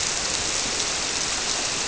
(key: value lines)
label: biophony
recorder: SoundTrap 300